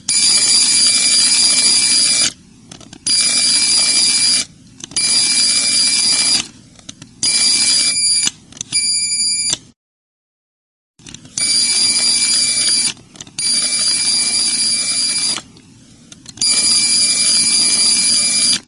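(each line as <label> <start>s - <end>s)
A bell rings with a high-pitched tone. 0.0s - 9.7s
Crackling sound. 2.6s - 3.0s
Crackling sound. 4.7s - 4.9s
Crackling sound. 6.7s - 7.1s
Crackling sound. 10.8s - 11.3s
A bell rings with a high-pitched tone. 11.3s - 15.6s
Crackling sound. 13.1s - 13.4s
Crackling sound. 15.9s - 16.4s
A bell rings with a high-pitched tone. 16.4s - 18.7s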